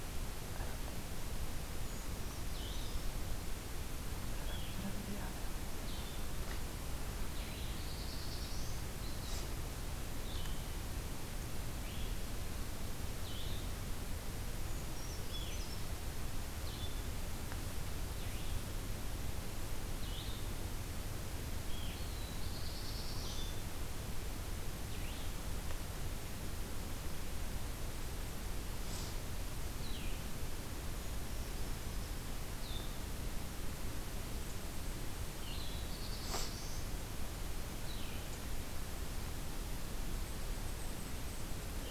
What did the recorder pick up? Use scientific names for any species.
Vireo solitarius, Certhia americana, Setophaga caerulescens